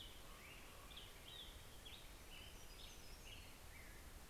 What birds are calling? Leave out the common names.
Corvus corax, Turdus migratorius, Setophaga occidentalis